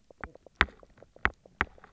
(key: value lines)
label: biophony, knock croak
recorder: SoundTrap 300